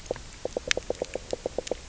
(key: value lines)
label: biophony, knock croak
recorder: SoundTrap 300